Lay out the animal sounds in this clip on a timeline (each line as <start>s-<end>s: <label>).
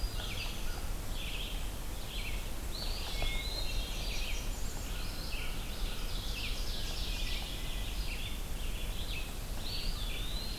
0.0s-1.0s: Hermit Thrush (Catharus guttatus)
0.0s-1.3s: American Crow (Corvus brachyrhynchos)
0.0s-10.6s: Red-eyed Vireo (Vireo olivaceus)
2.7s-3.8s: Eastern Wood-Pewee (Contopus virens)
2.9s-4.6s: Hermit Thrush (Catharus guttatus)
3.4s-4.9s: Blackburnian Warbler (Setophaga fusca)
5.8s-7.7s: Ovenbird (Seiurus aurocapilla)
9.5s-10.6s: Eastern Wood-Pewee (Contopus virens)